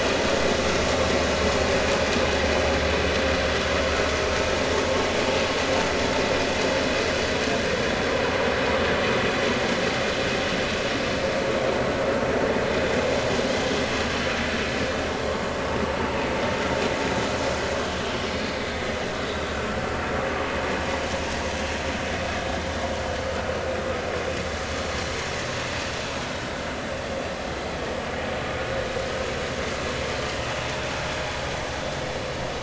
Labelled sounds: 13.5	13.8	vessel noise, 3.1 to 3.4 kHz

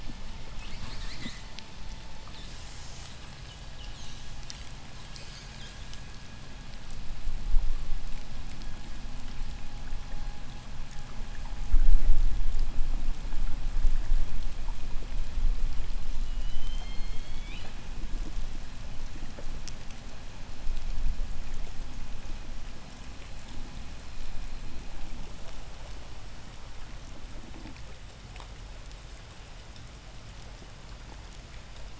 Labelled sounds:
0.4	1.7	killer whale, southern resident, J pod, call S10, 0.09 to 8.0 kHz
2.1	6.2	killer whale, southern resident, J pod, 0.46 to 8.0 kHz
16.1	18.1	killer whale, southern resident, J pod, 1.5 to 8.0 kHz

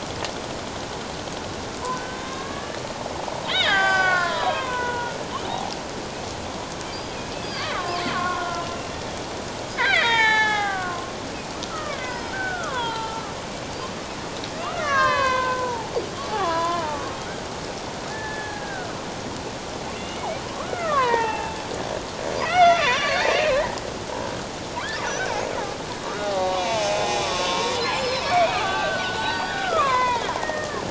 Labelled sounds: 1.9	2.8	killer whale, Bigg's (transient), 1.0 to 3.8 kHz
3.4	4.7	killer whale, Bigg's (transient), call T07, 0.78 to 7.1 kHz
3.6	5.2	killer whale, Bigg's (transient), 0.78 to 7.1 kHz
7.4	9.0	killer whale, Bigg's (transient), 0.97 to 4.9 kHz
9.7	13.3	killer whale, Bigg's (transient), 0.78 to 7.5 kHz
14.6	15.9	killer whale, Bigg's (transient), 0.78 to 6.2 kHz
16.3	17.1	killer whale, Bigg's (transient), 0.84 to 2.5 kHz
18.1	18.9	killer whale, Bigg's (transient), 1.4 to 1.8 kHz
19.9	21.6	killer whale, Bigg's (transient), 0.81 to 3.0 kHz
22.4	23.4	killer whale, Bigg's (transient), 0.94 to 6.3 kHz
26.0	30.8	killer whale, Bigg's (transient), 0.78 to 5.5 kHz

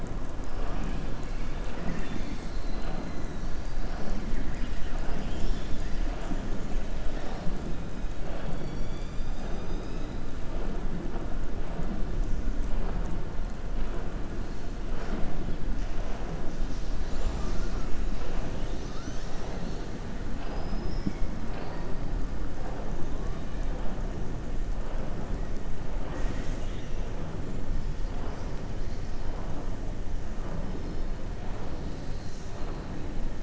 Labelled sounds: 20.3	21.1	killer whale, southern resident, 0.77 to 5.5 kHz

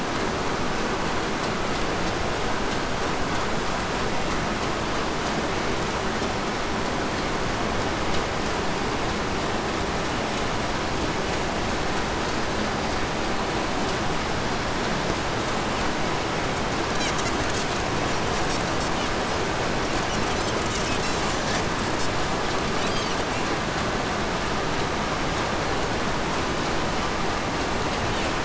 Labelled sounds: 16.5	23.4	Pacific white-sided dolphin, 0.82 to 8.0 kHz
28.1	28.4	Pacific white-sided dolphin, 0.89 to 8.0 kHz

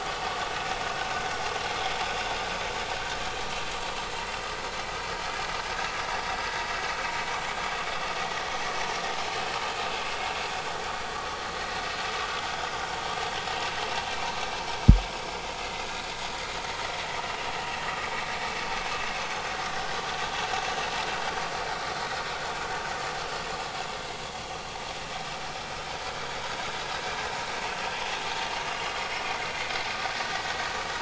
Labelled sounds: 15.6	15.9	vessel noise, 2.0 to 2.2 kHz
26.3	26.6	vessel noise, 6.4 to 6.5 kHz

